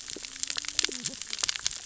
{"label": "biophony, cascading saw", "recorder": "SoundTrap 600 or HydroMoth"}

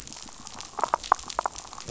{"label": "biophony", "recorder": "SoundTrap 500"}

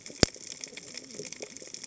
{"label": "biophony, cascading saw", "recorder": "HydroMoth"}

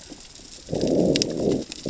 {"label": "biophony, growl", "recorder": "SoundTrap 600 or HydroMoth"}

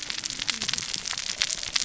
{"label": "biophony, cascading saw", "recorder": "SoundTrap 600 or HydroMoth"}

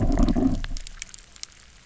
{"label": "biophony, low growl", "recorder": "SoundTrap 300"}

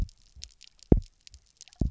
{"label": "biophony, double pulse", "recorder": "SoundTrap 300"}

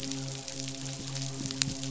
{"label": "biophony, midshipman", "recorder": "SoundTrap 500"}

